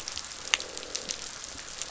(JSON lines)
{"label": "biophony, croak", "recorder": "SoundTrap 500"}